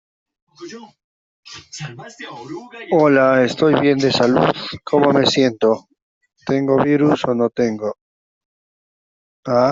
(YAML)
expert_labels:
- quality: no cough present
  dyspnea: false
  wheezing: false
  stridor: false
  choking: false
  congestion: false
  nothing: false